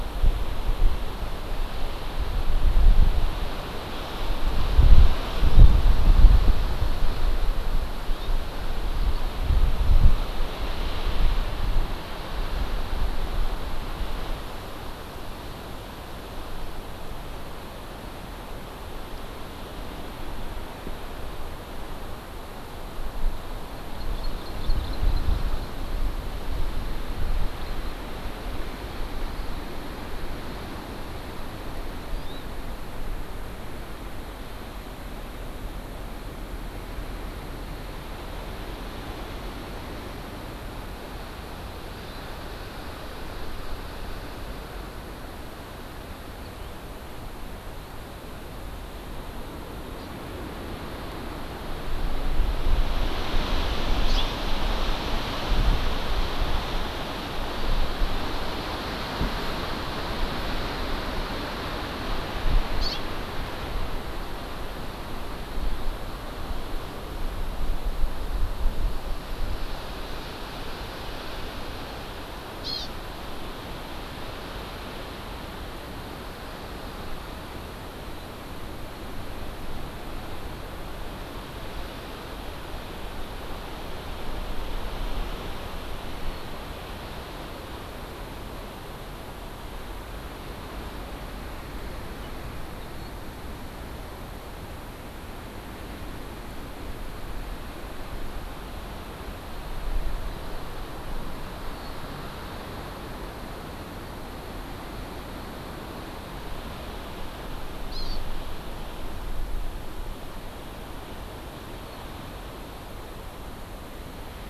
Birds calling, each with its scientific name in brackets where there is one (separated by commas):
Hawaii Amakihi (Chlorodrepanis virens), House Finch (Haemorhous mexicanus)